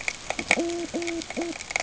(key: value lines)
label: ambient
recorder: HydroMoth